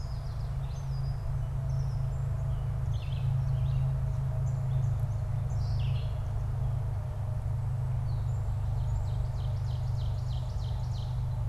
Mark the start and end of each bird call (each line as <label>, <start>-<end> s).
Yellow Warbler (Setophaga petechia), 0.0-0.6 s
Gray Catbird (Dumetella carolinensis), 0.0-6.3 s
Red-eyed Vireo (Vireo olivaceus), 5.6-6.2 s
Ovenbird (Seiurus aurocapilla), 8.6-11.4 s